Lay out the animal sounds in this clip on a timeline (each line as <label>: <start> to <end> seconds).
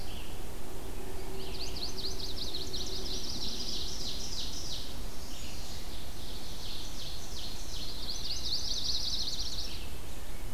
Red-eyed Vireo (Vireo olivaceus): 0.0 to 5.7 seconds
Chestnut-sided Warbler (Setophaga pensylvanica): 1.1 to 3.4 seconds
Ovenbird (Seiurus aurocapilla): 2.5 to 4.9 seconds
Northern Parula (Setophaga americana): 4.8 to 6.0 seconds
Ovenbird (Seiurus aurocapilla): 5.9 to 8.0 seconds
Chestnut-sided Warbler (Setophaga pensylvanica): 8.0 to 9.9 seconds
Red-eyed Vireo (Vireo olivaceus): 8.0 to 10.5 seconds